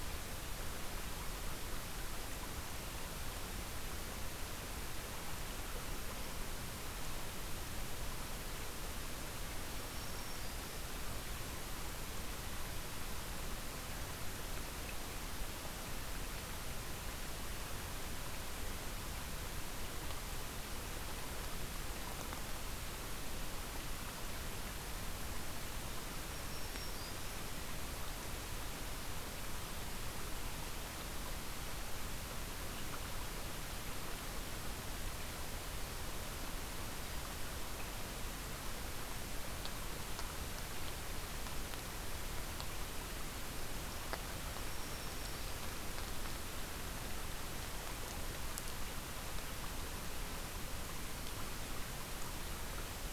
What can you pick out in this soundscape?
Black-throated Green Warbler